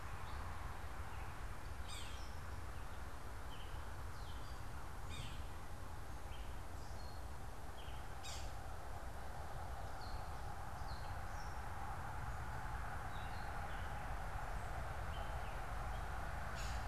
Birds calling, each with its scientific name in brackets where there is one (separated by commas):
Yellow-bellied Sapsucker (Sphyrapicus varius), Gray Catbird (Dumetella carolinensis)